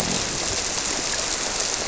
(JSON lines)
{"label": "biophony", "recorder": "SoundTrap 300"}
{"label": "biophony, grouper", "recorder": "SoundTrap 300"}